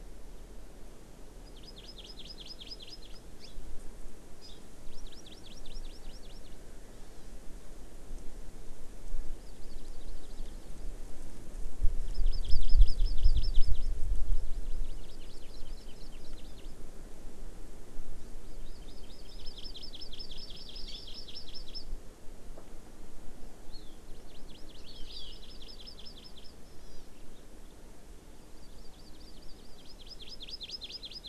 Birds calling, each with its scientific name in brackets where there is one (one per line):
Hawaii Amakihi (Chlorodrepanis virens)
House Finch (Haemorhous mexicanus)